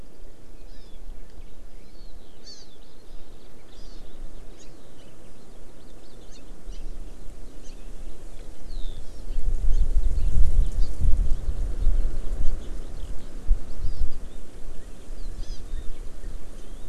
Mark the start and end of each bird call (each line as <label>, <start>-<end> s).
Hawaii Amakihi (Chlorodrepanis virens), 0.7-1.0 s
Hawaii Amakihi (Chlorodrepanis virens), 2.4-2.8 s
Hawaii Amakihi (Chlorodrepanis virens), 3.7-4.0 s
Hawaii Amakihi (Chlorodrepanis virens), 6.3-6.4 s
Hawaii Amakihi (Chlorodrepanis virens), 9.0-9.3 s
Hawaii Amakihi (Chlorodrepanis virens), 13.8-14.0 s
Hawaii Amakihi (Chlorodrepanis virens), 15.4-15.6 s